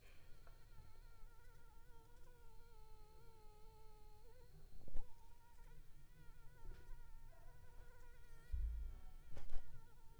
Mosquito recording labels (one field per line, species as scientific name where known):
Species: Anopheles gambiae s.l.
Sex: female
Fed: unfed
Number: one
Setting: cup